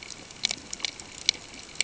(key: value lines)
label: ambient
recorder: HydroMoth